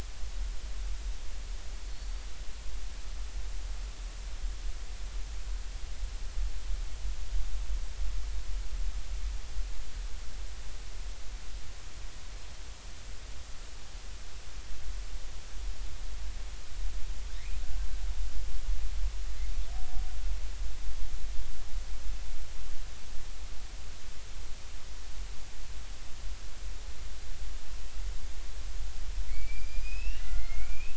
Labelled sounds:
1.9	2.2	killer whale, Bigg's (transient), 4.2 to 4.6 kHz
29.3	30.9	killer whale, Bigg's (transient), 1.6 to 5.5 kHz

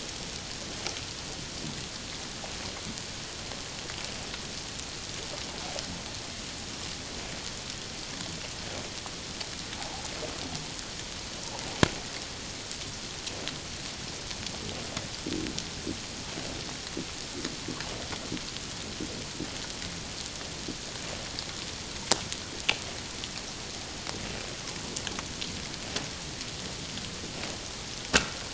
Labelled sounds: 9.8	10.0	water noise, 0.78 to 0.97 kHz

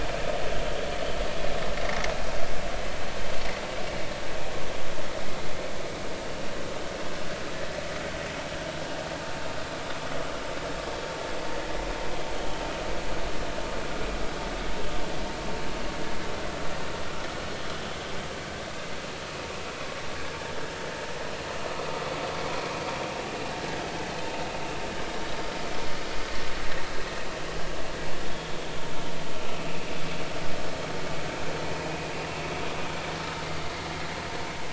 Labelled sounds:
1.8	2.0	vessel noise, 2.0 to 2.2 kHz

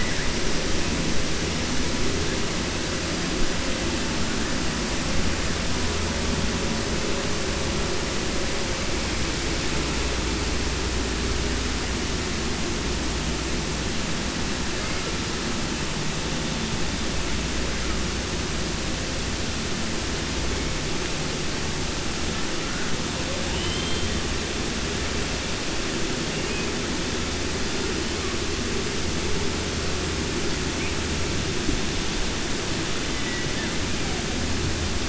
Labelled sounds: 23.5	24.1	killer whale, 2.1 to 4.1 kHz
33.2	33.7	killer whale, 0.94 to 3.0 kHz

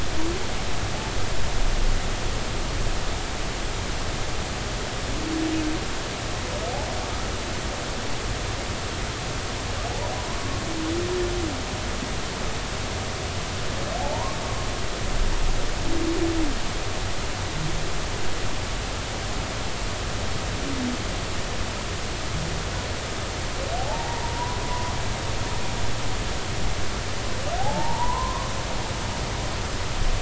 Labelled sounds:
10.3	10.6	humpback whale, 0.96 to 1.2 kHz
14.0	14.4	humpback whale, 0.80 to 1.1 kHz
23.8	25.6	humpback whale, 0.80 to 1.1 kHz
27.6	28.5	humpback whale, 0.80 to 1.2 kHz

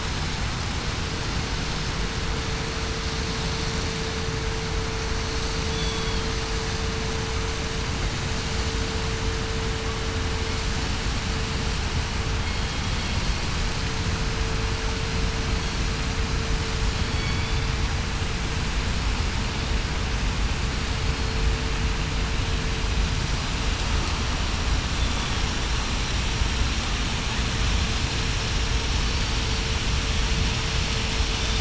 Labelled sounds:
5.7	6.2	killer whale, southern resident, 3.1 to 3.5 kHz
17.1	17.7	killer whale, southern resident, 3.3 to 3.7 kHz
21.1	21.5	killer whale, southern resident, 4.2 to 4.3 kHz
29.0	29.4	killer whale, southern resident, 4.5 to 4.6 kHz

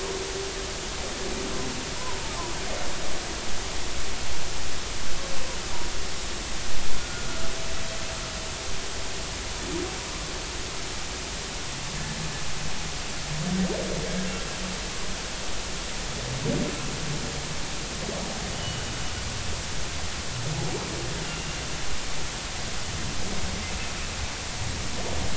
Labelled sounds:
7.0	7.3	humpback whale, 1.4 to 1.5 kHz
12.0	12.2	humpback whale, 1.6 to 1.8 kHz
18.5	18.8	humpback whale, 2.9 to 3.1 kHz

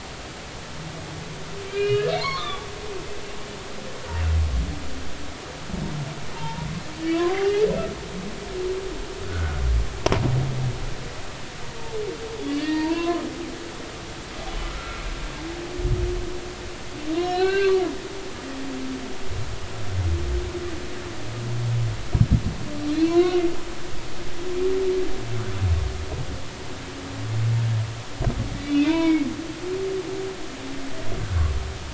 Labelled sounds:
1.7	2.6	humpback whale, 0.86 to 4.6 kHz
6.4	6.7	humpback whale, 0.83 to 0.99 kHz
9.3	9.6	humpback whale, 1.3 to 1.5 kHz
12.6	13.2	humpback whale, 0.86 to 1.9 kHz
14.5	15.0	humpback whale, 1.1 to 3.0 kHz
17.1	17.8	humpback whale, 1.4 to 4.4 kHz
22.9	23.4	humpback whale, 0.96 to 4.4 kHz
28.7	29.3	humpback whale, 0.90 to 4.0 kHz

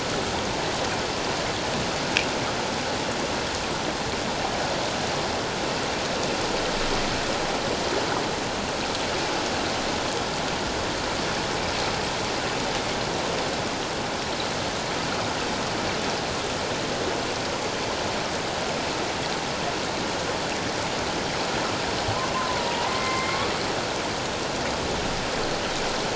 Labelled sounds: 22.3	23.4	humpback whale, 0.88 to 2.2 kHz

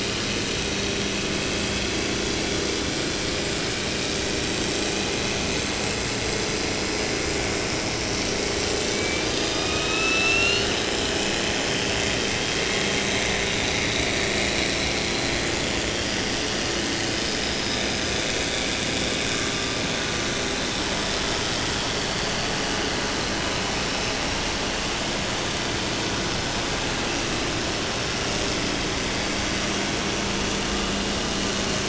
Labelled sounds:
8.8	10.8	killer whale, 0.93 to 8.0 kHz
16.0	17.0	killer whale, 4.4 to 5.2 kHz

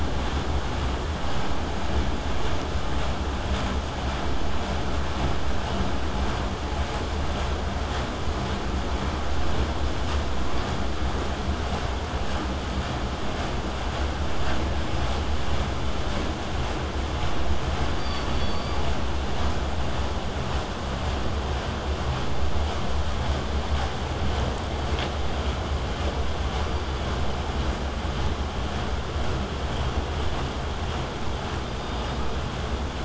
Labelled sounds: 26.6	27.1	killer whale, southern resident, K pod, call S16, 2.0 to 4.8 kHz
31.6	32.5	killer whale, southern resident, K pod, call S17, 3.5 to 5.0 kHz

